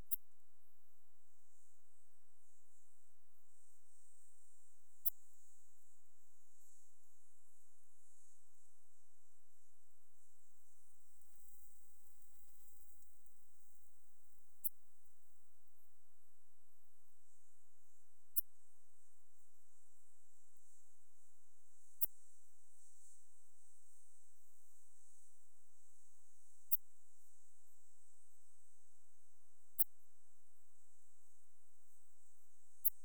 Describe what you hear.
Steropleurus andalusius, an orthopteran